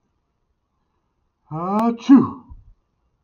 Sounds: Sneeze